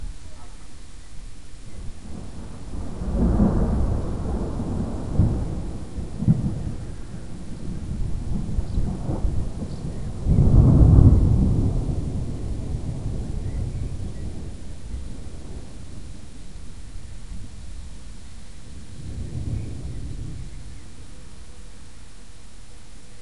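Rain falls steadily. 0:00.0 - 0:02.1
Rain falling during a heavy thunderstorm. 0:01.9 - 0:15.7
Rain falling with thunder and lightning during a storm. 0:15.3 - 0:23.2
Rain falling. 0:15.3 - 0:23.2

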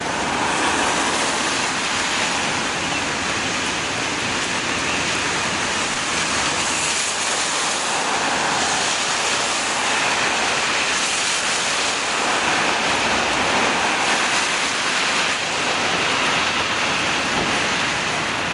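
A car passes by in the rain. 0:00.0 - 0:02.0
Rain pouring loudly on a hard surface. 0:00.0 - 0:18.5
Urban traffic with cars driving in the rain. 0:00.0 - 0:18.5
A car passes by in the rain. 0:07.7 - 0:09.8
A car passes by in the rain. 0:12.1 - 0:14.2

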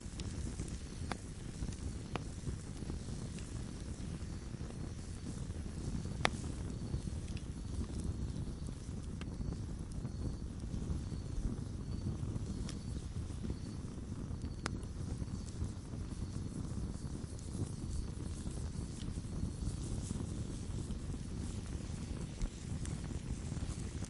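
Low-pitched popping sound with fire crackling. 0:01.0 - 0:01.2
Low-pitched popping sound with fire crackling. 0:02.0 - 0:02.3
A low-pitched popping sound combined with crackling fire. 0:06.1 - 0:06.4
A low-pitched popping sound combined with crackling fire. 0:14.5 - 0:14.7

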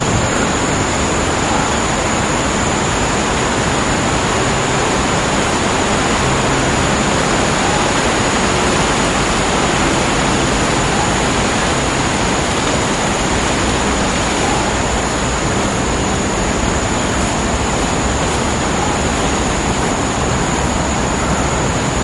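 Outdoor ambient noise. 0:00.0 - 0:22.0

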